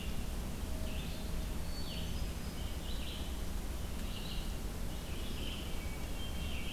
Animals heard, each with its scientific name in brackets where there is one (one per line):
Hermit Thrush (Catharus guttatus)
Red-eyed Vireo (Vireo olivaceus)